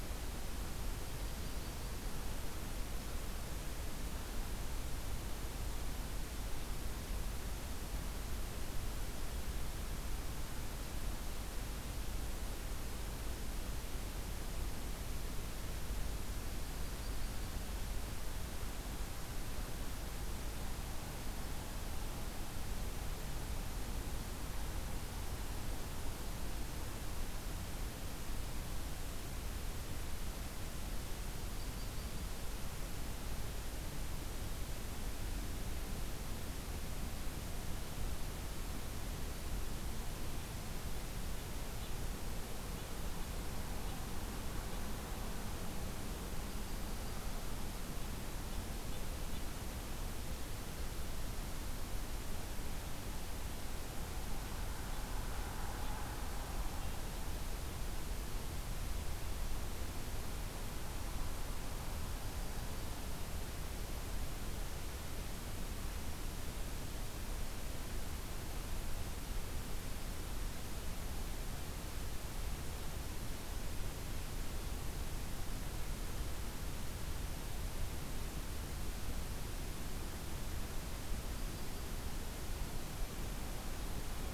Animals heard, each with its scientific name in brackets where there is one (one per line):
Yellow-rumped Warbler (Setophaga coronata)